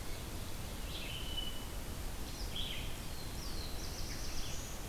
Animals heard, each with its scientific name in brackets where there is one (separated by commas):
Black-throated Blue Warbler (Setophaga caerulescens), Red-eyed Vireo (Vireo olivaceus), Hermit Thrush (Catharus guttatus)